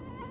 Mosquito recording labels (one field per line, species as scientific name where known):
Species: Anopheles dirus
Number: one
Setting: insect culture